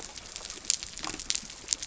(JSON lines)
{"label": "biophony", "recorder": "SoundTrap 300"}